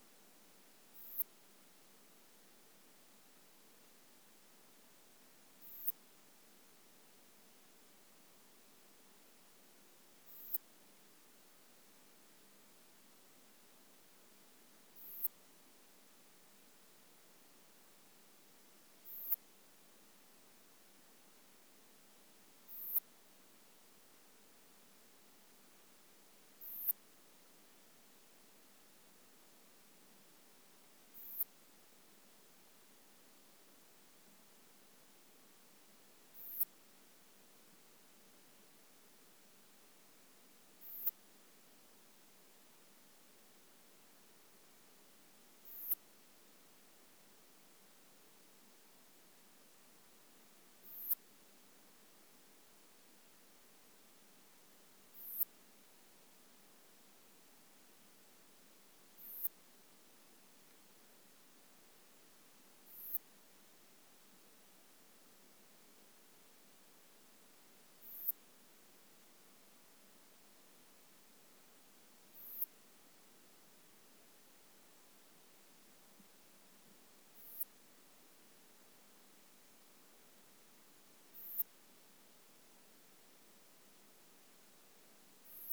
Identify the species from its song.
Poecilimon pseudornatus